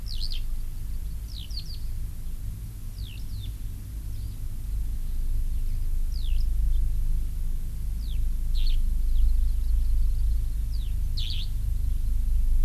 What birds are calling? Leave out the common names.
Alauda arvensis, Chlorodrepanis virens